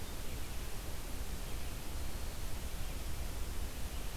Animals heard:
forest ambience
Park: Marsh-Billings-Rockefeller National Historical Park